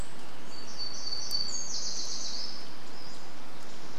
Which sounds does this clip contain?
warbler song, Pacific-slope Flycatcher call